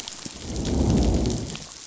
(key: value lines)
label: biophony, growl
recorder: SoundTrap 500